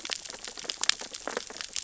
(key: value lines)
label: biophony, sea urchins (Echinidae)
recorder: SoundTrap 600 or HydroMoth